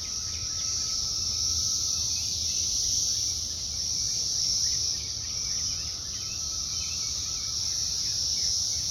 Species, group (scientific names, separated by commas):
Magicicada septendecim, Cicadidae